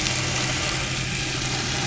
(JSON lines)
{"label": "anthrophony, boat engine", "recorder": "SoundTrap 500"}